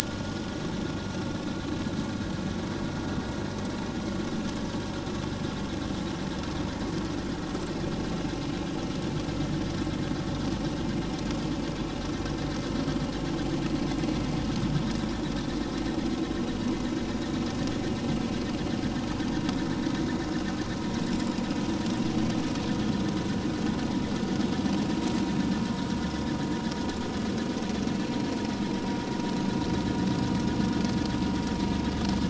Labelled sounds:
1.0	1.4	vessel noise, 1.3 to 1.5 kHz

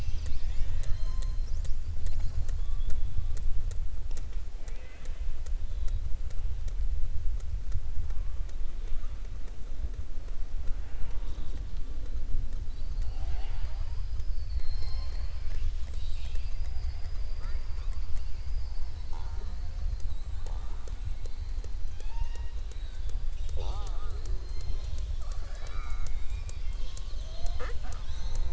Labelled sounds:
4.5	5.3	killer whale, southern resident, 0.47 to 4.1 kHz

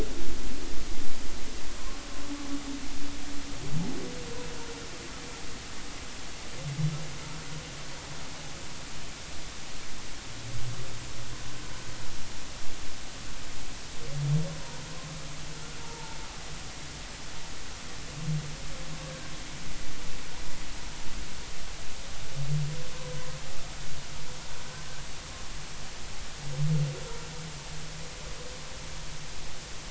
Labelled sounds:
14.6	14.8	humpback whale, 0.90 to 1.0 kHz
15.8	16.2	humpback whale, 0.83 to 0.99 kHz

